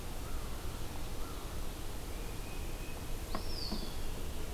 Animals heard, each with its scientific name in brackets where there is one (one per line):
Tufted Titmouse (Baeolophus bicolor)
Red-eyed Vireo (Vireo olivaceus)
Eastern Wood-Pewee (Contopus virens)